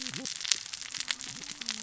{"label": "biophony, cascading saw", "recorder": "SoundTrap 600 or HydroMoth"}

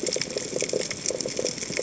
{"label": "biophony, chatter", "recorder": "HydroMoth"}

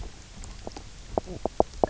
{"label": "biophony, knock croak", "recorder": "SoundTrap 300"}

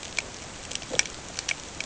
{"label": "ambient", "recorder": "HydroMoth"}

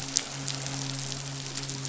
{"label": "biophony, midshipman", "recorder": "SoundTrap 500"}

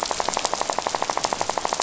{"label": "biophony, rattle", "recorder": "SoundTrap 500"}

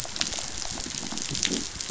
{"label": "biophony", "recorder": "SoundTrap 500"}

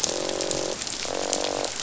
{"label": "biophony, croak", "recorder": "SoundTrap 500"}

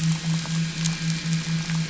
{"label": "anthrophony, boat engine", "recorder": "SoundTrap 500"}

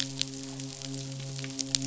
{"label": "biophony, midshipman", "recorder": "SoundTrap 500"}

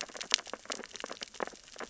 {"label": "biophony, sea urchins (Echinidae)", "recorder": "SoundTrap 600 or HydroMoth"}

